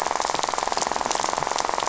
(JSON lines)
{"label": "biophony, rattle", "recorder": "SoundTrap 500"}